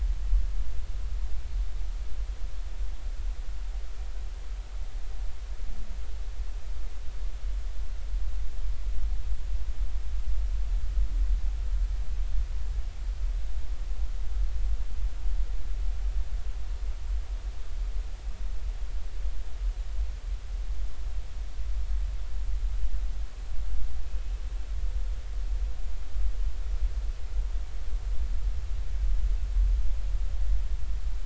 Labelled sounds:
24.0	24.3	humpback whale, 2.5 to 2.6 kHz

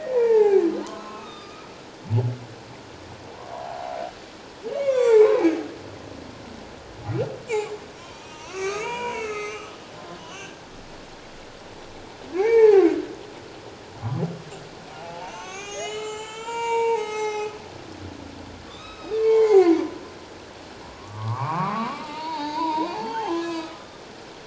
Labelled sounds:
0.1	1.7	humpback whale, 0.78 to 4.9 kHz
3.5	3.9	humpback whale, 0.78 to 1.2 kHz
4.7	5.5	humpback whale, 0.81 to 7.6 kHz
8.2	9.8	humpback whale, 0.88 to 6.7 kHz
10.2	10.6	humpback whale, 1.4 to 3.2 kHz
12.3	12.9	humpback whale, 0.78 to 2.8 kHz
14.9	17.5	humpback whale, 0.78 to 8.0 kHz
18.7	19.8	humpback whale, 0.78 to 5.3 kHz
20.9	23.9	humpback whale, 0.78 to 4.9 kHz

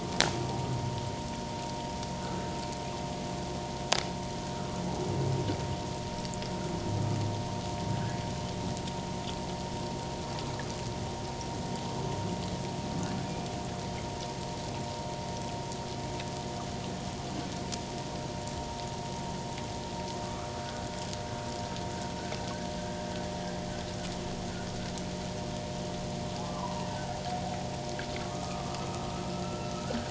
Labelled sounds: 20.2	20.5	humpback whale, 1.1 to 1.4 kHz
26.4	26.8	humpback whale, 0.94 to 1.2 kHz
28.2	30.0	humpback whale, 1.1 to 1.7 kHz

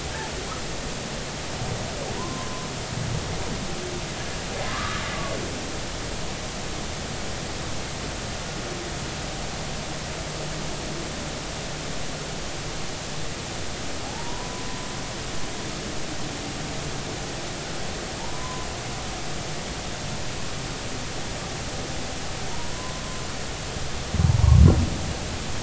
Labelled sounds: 2.1	2.7	humpback whale, 0.90 to 1.1 kHz
4.6	5.0	humpback whale, 0.99 to 1.3 kHz
14.0	14.6	humpback whale, 0.80 to 1.1 kHz
18.2	18.7	humpback whale, 0.83 to 1.1 kHz
22.5	23.0	humpback whale, 0.86 to 1.1 kHz
24.2	24.6	humpback whale, 0.83 to 0.99 kHz

